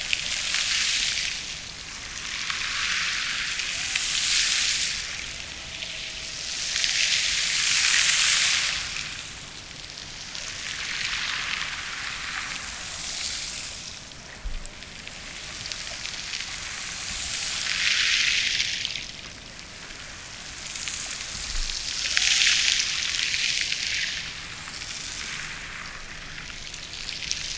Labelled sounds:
3.6	7.4	killer whale, Bigg's (transient), Gulf of Alaska transient, 0.16 to 0.98 kHz

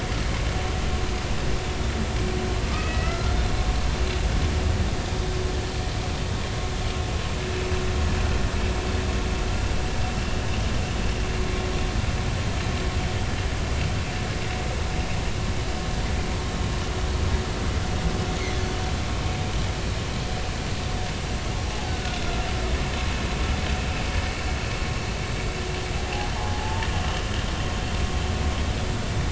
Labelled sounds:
2.7	3.3	humpback whale, 1.2 to 2.7 kHz
21.7	22.2	humpback whale, 0.80 to 1.5 kHz
26.3	26.9	humpback whale, 0.80 to 1.1 kHz

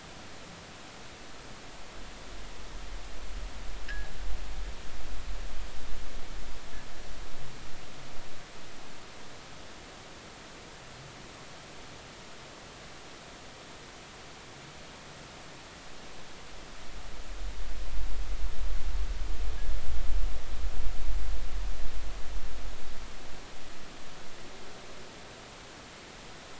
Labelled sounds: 3.9	4.1	fishing gear, 1.6 to 1.9 kHz

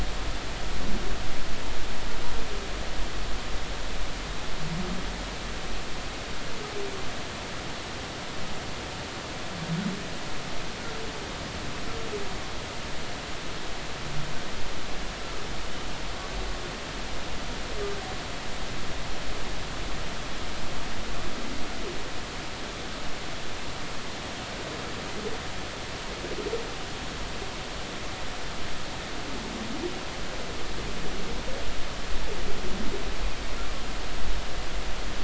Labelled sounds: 15.2	15.5	humpback whale, 1.2 to 1.4 kHz

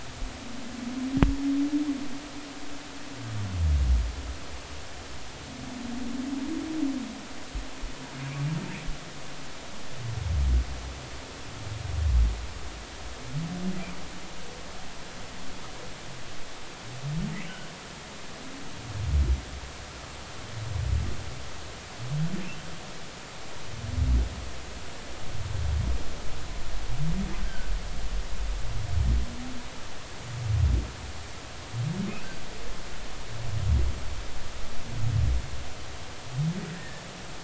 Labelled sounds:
27.4	27.7	humpback whale, 1.4 to 1.6 kHz
36.7	37.0	humpback whale, 1.6 to 2.0 kHz

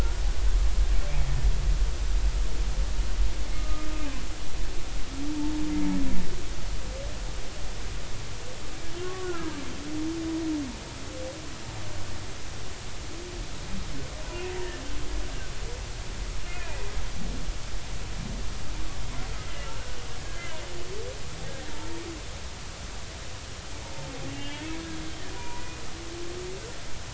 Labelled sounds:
3.5	3.9	humpback whale, 1.2 to 1.3 kHz
9.0	9.6	humpback whale, 1.0 to 1.7 kHz
16.5	16.8	humpback whale, 2.3 to 2.6 kHz
19.6	20.7	humpback whale, 1.3 to 3.2 kHz
24.3	24.7	humpback whale, 1.7 to 3.3 kHz
25.3	25.6	humpback whale, 0.90 to 2.5 kHz

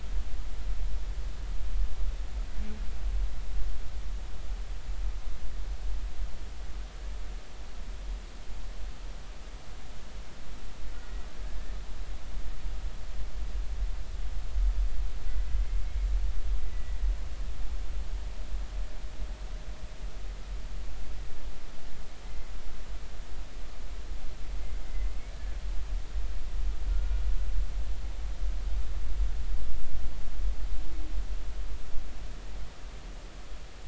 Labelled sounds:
10.9	11.7	humpback whale, 1.5 to 2.0 kHz
15.8	17.1	humpback whale, 1.9 to 2.2 kHz
22.2	22.5	humpback whale, 2.0 to 2.1 kHz
25.3	25.6	humpback whale, 1.6 to 1.8 kHz
26.9	27.2	humpback whale, 1.3 to 1.5 kHz

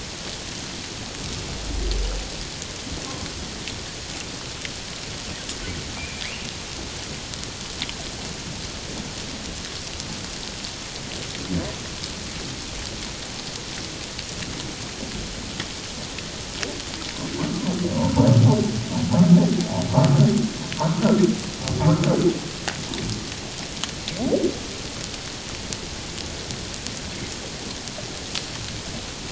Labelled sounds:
6.0	6.5	humpback whale, 1.9 to 2.9 kHz
17.9	18.3	humpback whale, 0.81 to 1.1 kHz

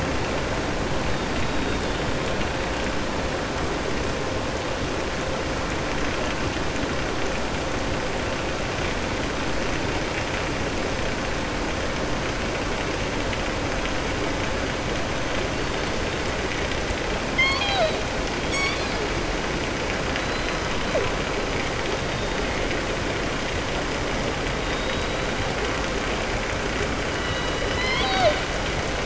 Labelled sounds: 17.2	18.0	killer whale, southern resident, 0.65 to 7.8 kHz
20.1	20.5	killer whale, southern resident, 3.0 to 4.1 kHz

